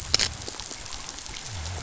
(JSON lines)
{"label": "biophony", "recorder": "SoundTrap 500"}